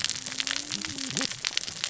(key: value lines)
label: biophony, cascading saw
recorder: SoundTrap 600 or HydroMoth